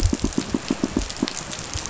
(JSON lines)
{"label": "biophony, pulse", "recorder": "SoundTrap 500"}